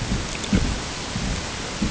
{"label": "ambient", "recorder": "HydroMoth"}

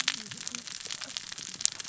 {"label": "biophony, cascading saw", "recorder": "SoundTrap 600 or HydroMoth"}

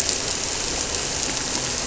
{"label": "anthrophony, boat engine", "recorder": "SoundTrap 300"}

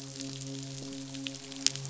{"label": "biophony, midshipman", "recorder": "SoundTrap 500"}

